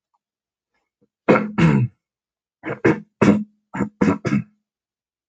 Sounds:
Throat clearing